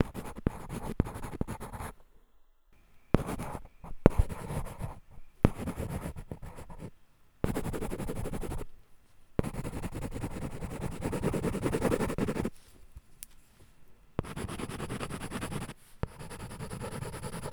Is someone ripping up paper?
no